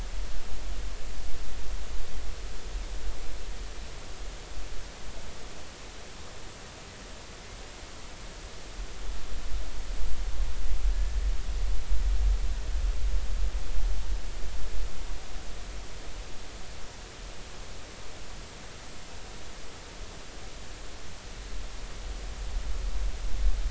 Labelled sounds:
10.9	11.2	killer whale, 1.7 to 1.8 kHz

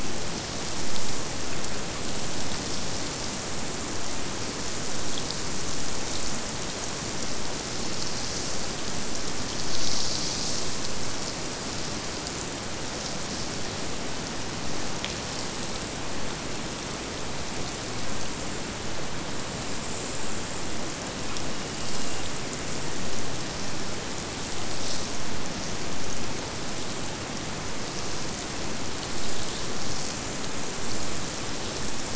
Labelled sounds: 21.5	23.4	killer whale, Bigg's (transient), Gulf of Alaska transient, 1.7 to 3.1 kHz

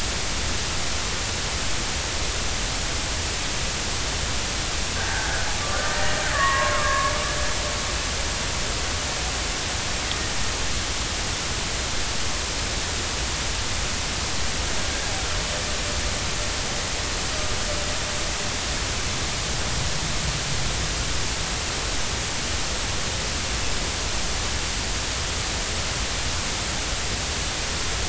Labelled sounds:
5.0	7.1	killer whale, Bigg's (transient), 0.93 to 2.0 kHz
14.9	15.1	killer whale, Bigg's (transient), 1.6 to 1.8 kHz

